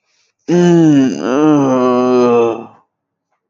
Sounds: Sigh